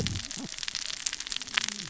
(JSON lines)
{"label": "biophony, cascading saw", "recorder": "SoundTrap 600 or HydroMoth"}